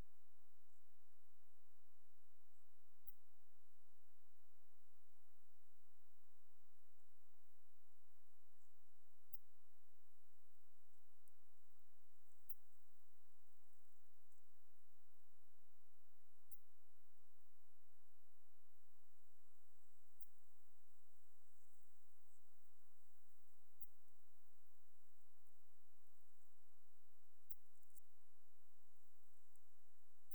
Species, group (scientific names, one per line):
Steropleurus andalusius
Orthoptera